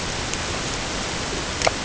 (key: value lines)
label: ambient
recorder: HydroMoth